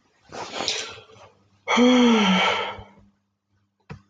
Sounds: Sigh